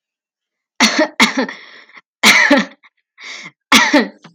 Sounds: Cough